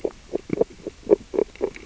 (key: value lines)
label: biophony, grazing
recorder: SoundTrap 600 or HydroMoth